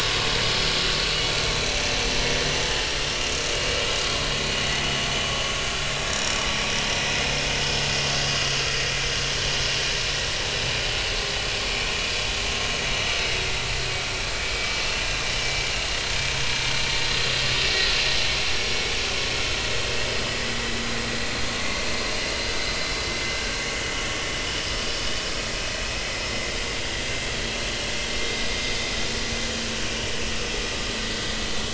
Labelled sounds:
1.9	2.2	vessel noise, 5.8 to 6.1 kHz
6.1	6.4	vessel noise, 5.5 to 5.8 kHz
6.7	7.0	vessel noise, 6.0 to 6.2 kHz
8.2	8.5	vessel noise, 4.7 to 4.9 kHz
13.1	13.3	vessel noise, 4.9 to 5.1 kHz
21.6	21.9	vessel noise, 2.0 to 2.1 kHz

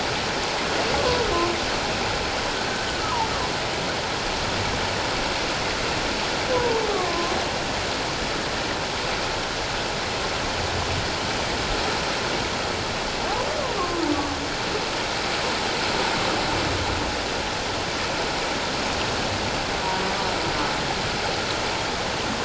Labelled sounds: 6.5	7.4	humpback whale, 0.88 to 1.2 kHz
13.8	14.1	humpback whale, 0.88 to 1.2 kHz

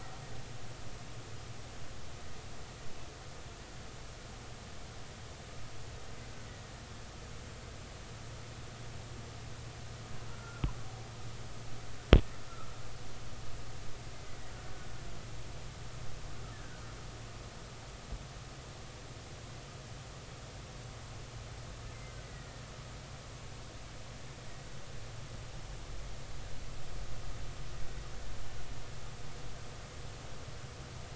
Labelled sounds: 10.3	10.8	killer whale, Bigg's (transient), 0.93 to 1.5 kHz
16.5	16.8	killer whale, Bigg's (transient), 1.4 to 1.9 kHz
22.2	22.6	killer whale, Bigg's (transient), 1.8 to 2.0 kHz

